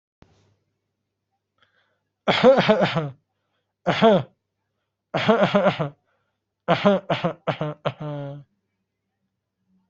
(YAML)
expert_labels:
- quality: good
  cough_type: dry
  dyspnea: false
  wheezing: false
  stridor: false
  choking: false
  congestion: false
  nothing: true
  diagnosis: upper respiratory tract infection
  severity: mild
age: 30
gender: male
respiratory_condition: true
fever_muscle_pain: false
status: healthy